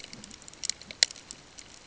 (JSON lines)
{"label": "ambient", "recorder": "HydroMoth"}